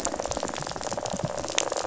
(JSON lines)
{"label": "biophony, rattle", "recorder": "SoundTrap 500"}